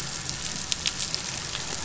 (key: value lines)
label: anthrophony, boat engine
recorder: SoundTrap 500